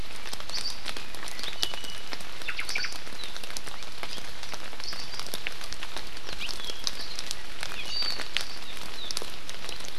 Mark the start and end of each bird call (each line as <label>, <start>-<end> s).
Iiwi (Drepanis coccinea), 1.6-2.1 s
Omao (Myadestes obscurus), 2.4-2.9 s